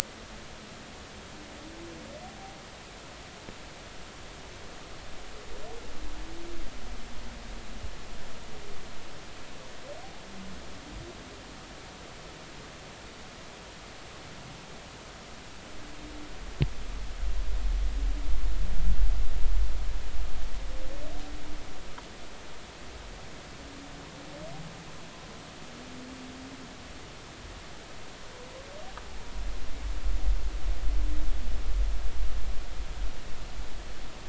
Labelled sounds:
2.2	2.6	humpback whale, 0.80 to 0.83 kHz

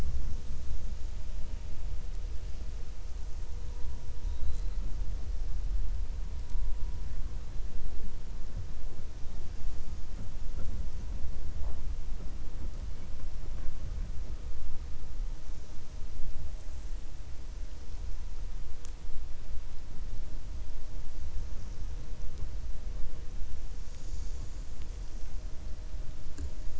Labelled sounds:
4.2	4.7	killer whale, 3.3 to 4.2 kHz

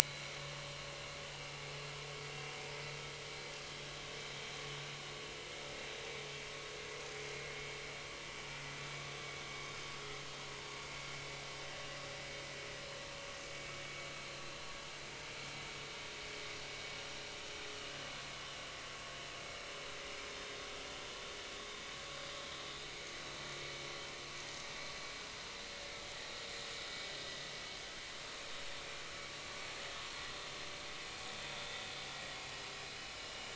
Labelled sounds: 0.0	0.4	vessel noise, 2.1 to 4.3 kHz
33.2	33.5	vessel noise, 2.8 to 3.0 kHz

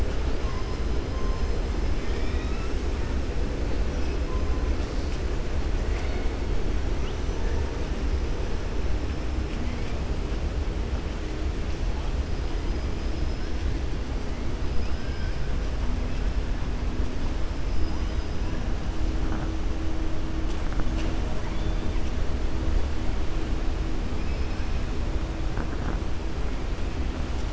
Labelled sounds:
1.9	2.7	killer whale, 1.3 to 5.4 kHz
13.0	13.7	killer whale, 4.2 to 5.7 kHz
17.6	18.3	killer whale, 4.8 to 5.9 kHz

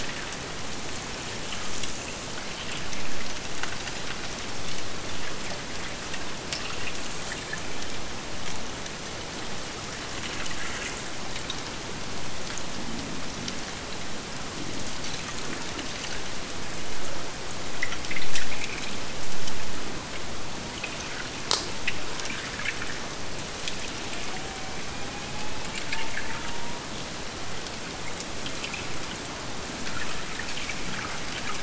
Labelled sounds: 24.1	27.0	killer whale, Bigg's (transient), AT1 transient, 0.63 to 3.0 kHz

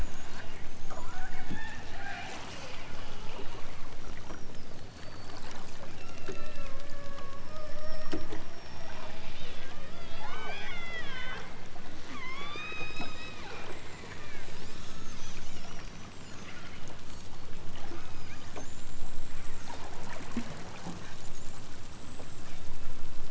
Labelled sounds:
1.0	1.5	killer whale, southern Alaska resident, 0.32 to 1.8 kHz
1.9	2.5	killer whale, southern Alaska resident, 0.55 to 3.4 kHz
5.9	8.5	killer whale, southern Alaska resident, 0.37 to 5.5 kHz
10.1	11.5	killer whale, southern Alaska resident, 0.51 to 5.7 kHz
12.0	13.5	killer whale, southern Alaska resident, 0.60 to 8.0 kHz
14.4	15.2	killer whale, southern Alaska resident, 3.8 to 8.0 kHz
16.4	17.3	killer whale, southern Alaska resident, 1.1 to 8.0 kHz
17.9	18.5	killer whale, southern Alaska resident, 1.8 to 5.6 kHz

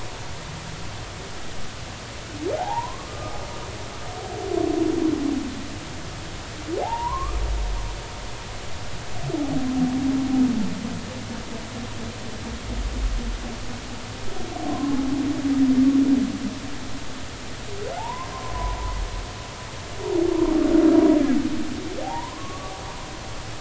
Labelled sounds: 2.6	3.3	humpback whale, 0.80 to 1.3 kHz
6.8	7.4	humpback whale, 0.80 to 1.3 kHz
14.7	15.0	humpback whale, 0.96 to 1.1 kHz
18.0	18.8	humpback whale, 0.80 to 1.1 kHz
22.0	22.7	humpback whale, 0.80 to 1.2 kHz

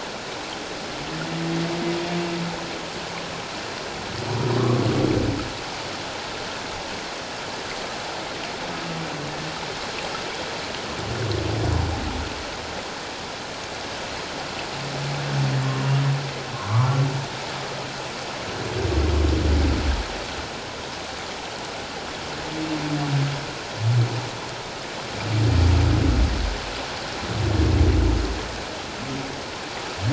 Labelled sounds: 4.6	4.8	humpback whale, 1.0 to 1.2 kHz
16.7	17.0	humpback whale, 0.88 to 1.4 kHz

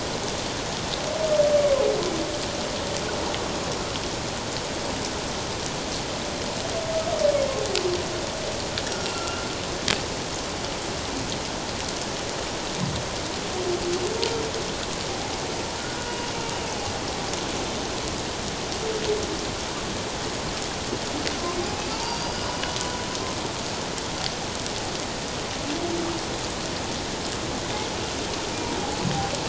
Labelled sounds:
9.1	9.5	humpback whale, 1.3 to 1.4 kHz
15.8	16.1	humpback whale, 1.4 to 1.6 kHz
16.5	16.8	humpback whale, 2.6 to 2.9 kHz
21.9	22.5	humpback whale, 0.88 to 4.9 kHz

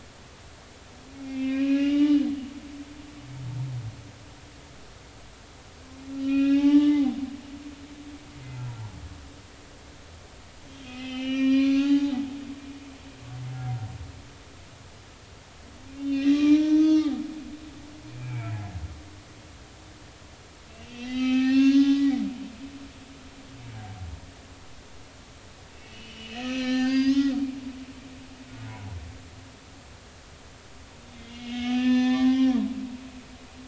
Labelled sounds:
1.2	2.3	humpback whale, 1.1 to 3.8 kHz
6.2	7.2	humpback whale, 0.80 to 3.9 kHz
10.6	12.2	humpback whale, 0.80 to 6.4 kHz
15.9	17.1	humpback whale, 1.1 to 6.3 kHz
18.2	18.5	humpback whale, 2.2 to 2.6 kHz
20.7	22.2	humpback whale, 0.80 to 6.0 kHz
25.7	27.4	humpback whale, 0.80 to 6.4 kHz
31.2	32.6	humpback whale, 0.80 to 5.8 kHz

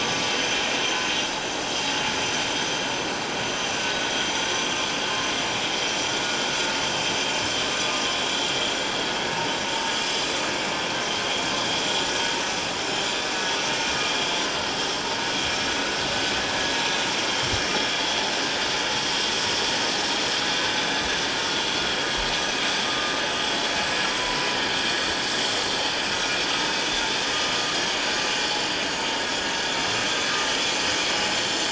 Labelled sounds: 24.1	24.5	vessel noise, 0.94 to 1.1 kHz
26.1	26.4	vessel noise, 1.4 to 1.5 kHz

